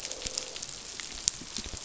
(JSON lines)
{"label": "biophony, croak", "recorder": "SoundTrap 500"}